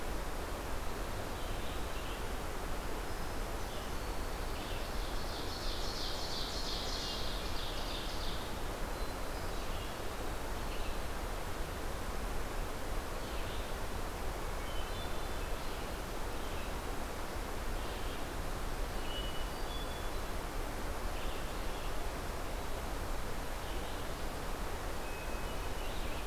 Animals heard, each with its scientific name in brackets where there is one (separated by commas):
Hermit Thrush (Catharus guttatus), Ovenbird (Seiurus aurocapilla), Red-eyed Vireo (Vireo olivaceus)